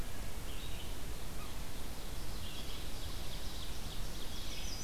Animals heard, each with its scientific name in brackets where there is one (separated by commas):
Red-eyed Vireo (Vireo olivaceus), Ovenbird (Seiurus aurocapilla), Chestnut-sided Warbler (Setophaga pensylvanica)